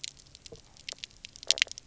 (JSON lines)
{"label": "biophony, knock croak", "recorder": "SoundTrap 300"}